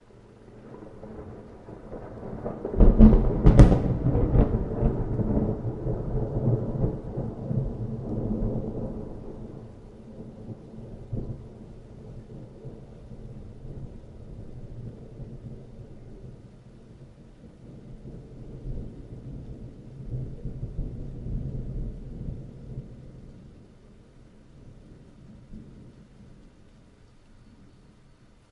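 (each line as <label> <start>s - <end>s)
Thunder peaks and then gradually fades. 0.0s - 12.9s
Low, consistent sound of rain. 12.9s - 18.2s
Thunder sounds again, more distant and low. 18.2s - 23.1s
The sound of distant, consistent rain. 23.2s - 28.5s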